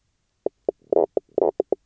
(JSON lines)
{"label": "biophony, knock croak", "recorder": "SoundTrap 300"}